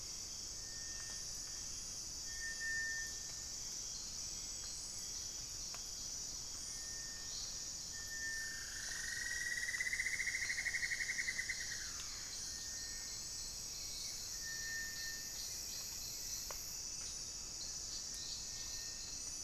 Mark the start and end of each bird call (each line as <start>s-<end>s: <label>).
0.0s-19.4s: Cinereous Tinamou (Crypturellus cinereus)
8.1s-12.7s: Cinnamon-throated Woodcreeper (Dendrexetastes rufigula)